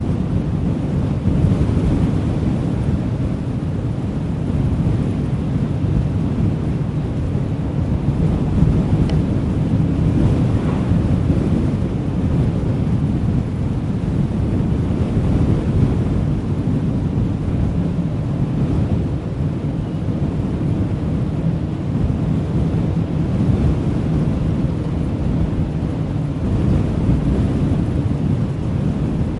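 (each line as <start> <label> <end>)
0.0 Wind is blowing. 29.4
9.1 Wood tapping. 9.2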